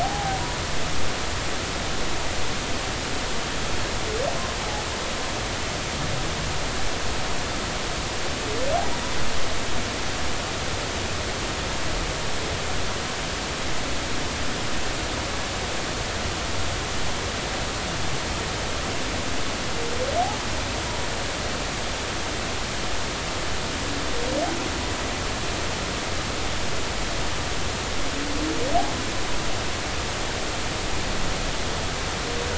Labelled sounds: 0.0	0.4	humpback whale, 0.80 to 0.93 kHz

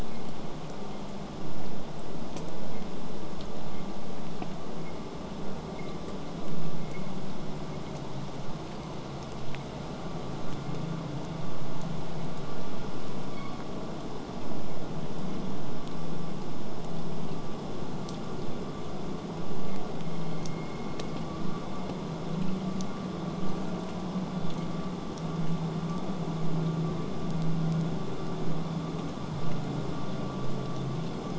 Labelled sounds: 26.4	31.3	abiotic sound, 0 to 8.0 kHz

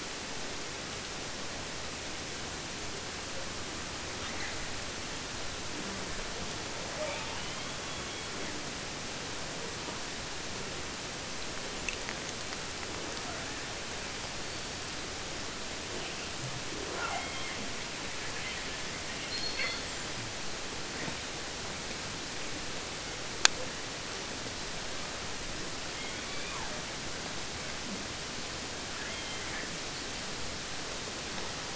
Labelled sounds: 4.2	4.7	killer whale, 0.30 to 6.0 kHz
6.9	8.8	killer whale, southern resident, J pod, call S44, 0.15 to 4.4 kHz
13.1	13.7	killer whale, 0.14 to 2.1 kHz
14.4	15.1	killer whale, 4.0 to 5.1 kHz
16.4	17.9	killer whale, southern resident, 0.03 to 3.7 kHz
18.1	19.0	killer whale, 0.50 to 3.8 kHz
19.1	20.2	killer whale, southern resident, J pod, call S42, 0.50 to 8.0 kHz
25.8	26.9	killer whale, southern resident, 0.24 to 5.5 kHz
28.9	29.9	killer whale, southern resident, J pod, call S44, 0.50 to 3.8 kHz

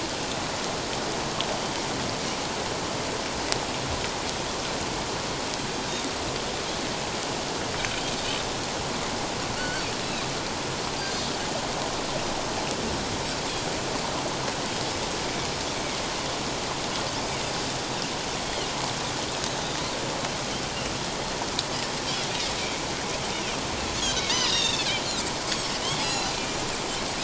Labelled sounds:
9.5	10.3	Pacific white-sided dolphin, 1.3 to 4.6 kHz
18.4	18.7	Pacific white-sided dolphin, 2.8 to 3.3 kHz
24.3	25.0	Pacific white-sided dolphin, 2.2 to 5.1 kHz
25.7	26.3	Pacific white-sided dolphin, 2.6 to 4.2 kHz

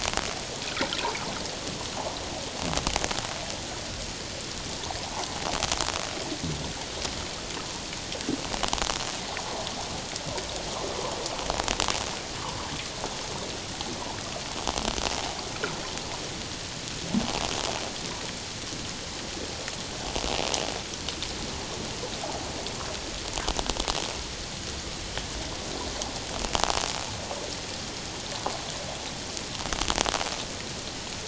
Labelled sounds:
5.0	5.4	water noise, 0.78 to 1.1 kHz

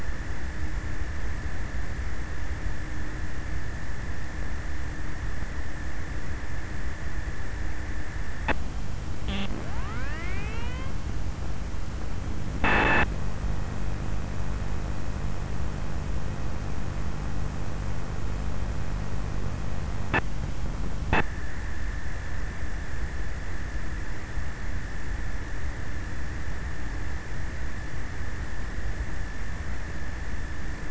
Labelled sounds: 7.7	14.4	abiotic sound, 0 to 8.0 kHz

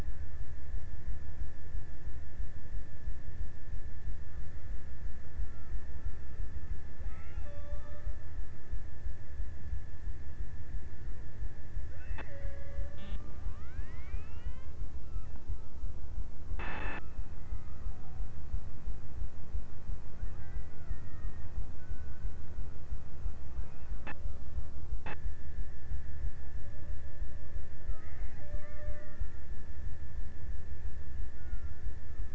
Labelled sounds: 6.4	9.1	killer whale, Bigg's (transient), 0.40 to 2.5 kHz
11.7	14.3	killer whale, Bigg's (transient), 0.39 to 2.8 kHz
19.7	22.4	killer whale, Bigg's (transient), 0.36 to 2.1 kHz
27.4	29.9	killer whale, Bigg's (transient), 0.37 to 2.5 kHz
30.8	32.2	killer whale, Bigg's (transient), 0.60 to 1.9 kHz

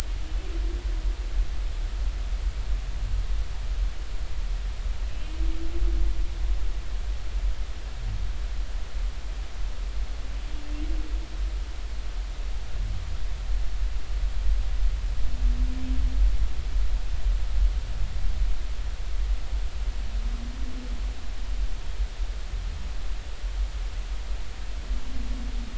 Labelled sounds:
5.1	5.4	humpback whale, 2.6 to 2.8 kHz

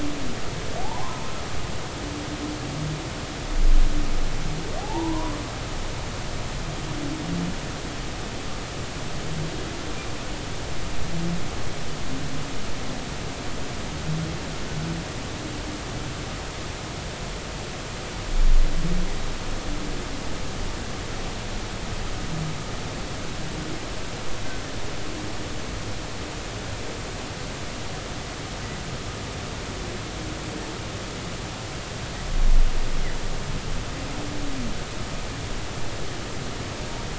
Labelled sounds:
0.8	1.3	humpback whale, 0.80 to 1.1 kHz
4.8	5.4	humpback whale, 0.80 to 1.2 kHz

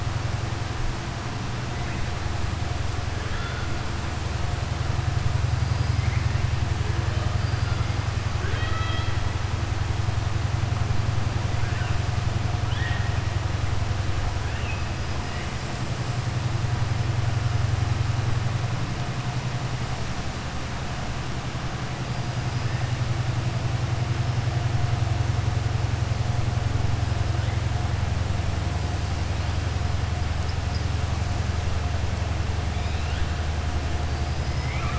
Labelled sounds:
3.2	3.7	killer whale, southern resident, 1.3 to 4.2 kHz
8.3	9.2	killer whale, southern resident, 0.42 to 4.6 kHz
12.6	13.1	killer whale, southern resident, 1.4 to 3.8 kHz
14.4	14.8	killer whale, southern resident, 1.7 to 3.0 kHz

